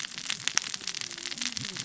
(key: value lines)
label: biophony, cascading saw
recorder: SoundTrap 600 or HydroMoth